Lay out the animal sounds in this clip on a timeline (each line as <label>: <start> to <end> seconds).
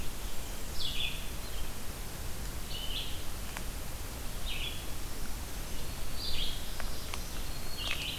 Red-eyed Vireo (Vireo olivaceus): 0.0 to 8.2 seconds
Black-throated Green Warbler (Setophaga virens): 6.8 to 8.2 seconds